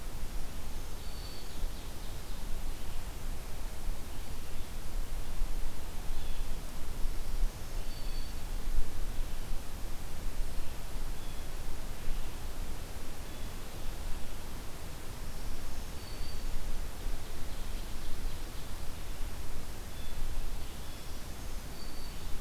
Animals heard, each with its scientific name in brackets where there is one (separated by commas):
Blue Jay (Cyanocitta cristata), Ovenbird (Seiurus aurocapilla), Black-throated Green Warbler (Setophaga virens)